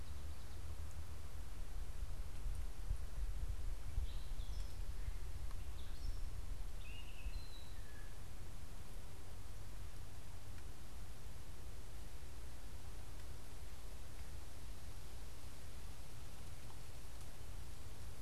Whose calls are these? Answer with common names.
Gray Catbird